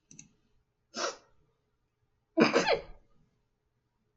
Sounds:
Sneeze